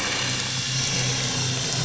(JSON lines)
{"label": "anthrophony, boat engine", "recorder": "SoundTrap 500"}